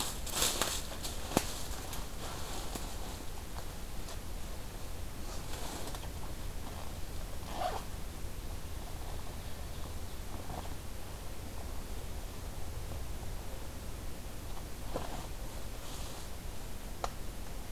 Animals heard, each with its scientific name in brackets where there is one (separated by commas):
Ovenbird (Seiurus aurocapilla)